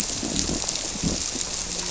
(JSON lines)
{"label": "biophony", "recorder": "SoundTrap 300"}
{"label": "biophony, grouper", "recorder": "SoundTrap 300"}